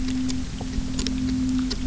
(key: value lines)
label: anthrophony, boat engine
recorder: SoundTrap 300